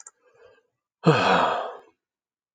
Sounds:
Sigh